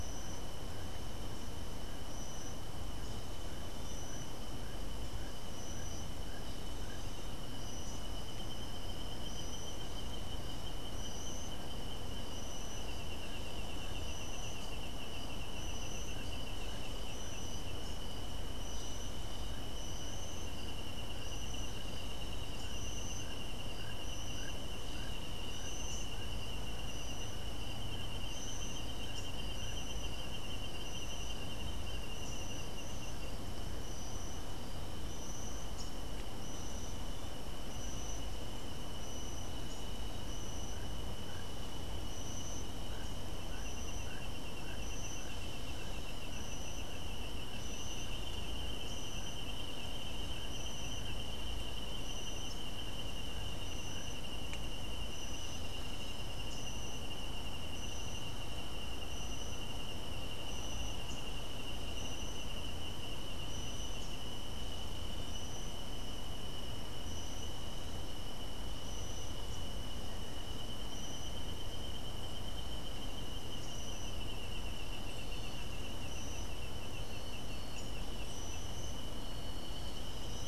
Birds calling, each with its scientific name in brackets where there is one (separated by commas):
Keel-billed Toucan (Ramphastos sulfuratus)